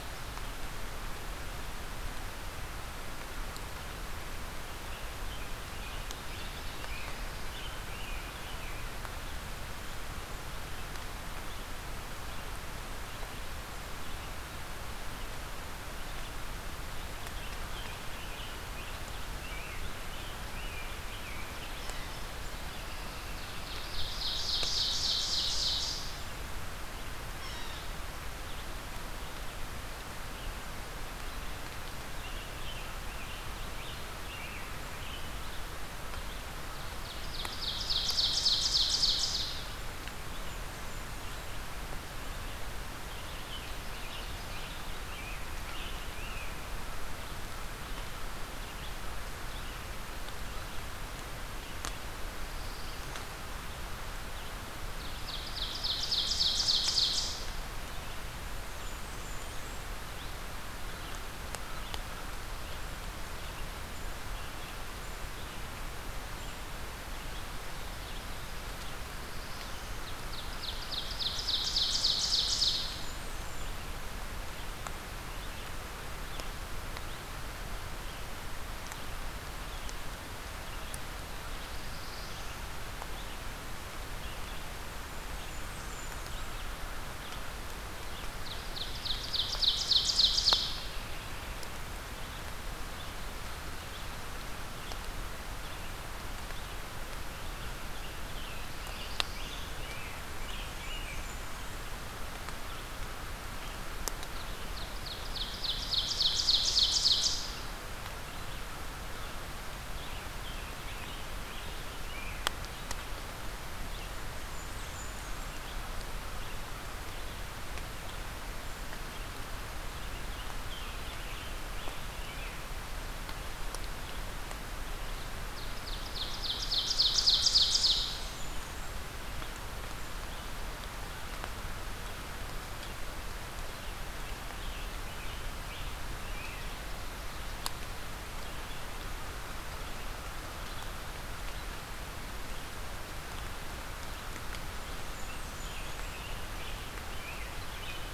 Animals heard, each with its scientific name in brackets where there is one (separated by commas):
Ovenbird (Seiurus aurocapilla), Red-eyed Vireo (Vireo olivaceus), Yellow-bellied Sapsucker (Sphyrapicus varius), American Crow (Corvus brachyrhynchos), Blackburnian Warbler (Setophaga fusca), American Robin (Turdus migratorius), Black-throated Blue Warbler (Setophaga caerulescens)